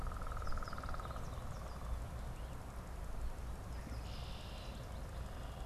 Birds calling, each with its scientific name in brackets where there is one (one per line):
American Goldfinch (Spinus tristis)
Red-winged Blackbird (Agelaius phoeniceus)